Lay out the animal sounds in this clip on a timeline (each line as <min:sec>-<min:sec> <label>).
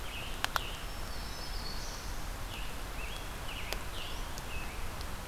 0:00.0-0:01.0 Scarlet Tanager (Piranga olivacea)
0:00.7-0:02.6 Black-throated Green Warbler (Setophaga virens)
0:02.4-0:05.0 Scarlet Tanager (Piranga olivacea)